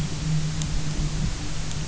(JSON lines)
{"label": "anthrophony, boat engine", "recorder": "SoundTrap 300"}